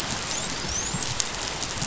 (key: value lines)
label: biophony, dolphin
recorder: SoundTrap 500